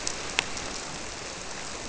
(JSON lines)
{"label": "biophony", "recorder": "SoundTrap 300"}